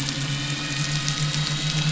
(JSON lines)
{"label": "anthrophony, boat engine", "recorder": "SoundTrap 500"}